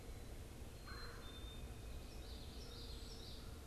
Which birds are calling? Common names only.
Black-capped Chickadee, Red-bellied Woodpecker, Common Yellowthroat